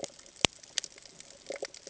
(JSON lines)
{"label": "ambient", "recorder": "HydroMoth"}